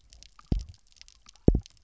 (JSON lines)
{"label": "biophony, double pulse", "recorder": "SoundTrap 300"}